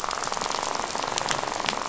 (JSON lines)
{"label": "biophony, rattle", "recorder": "SoundTrap 500"}